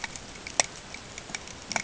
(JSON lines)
{"label": "ambient", "recorder": "HydroMoth"}